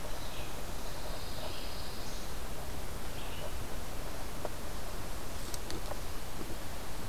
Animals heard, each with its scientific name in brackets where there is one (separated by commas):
Pine Warbler (Setophaga pinus), Red-eyed Vireo (Vireo olivaceus)